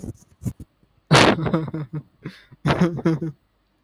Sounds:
Laughter